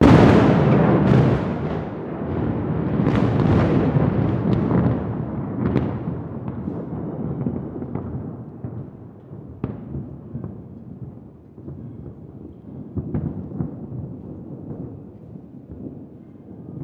Is there a storm?
no